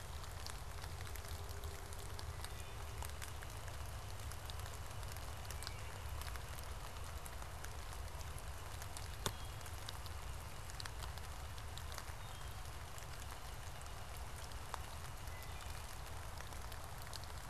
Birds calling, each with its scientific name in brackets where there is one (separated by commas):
Wood Thrush (Hylocichla mustelina), Northern Flicker (Colaptes auratus)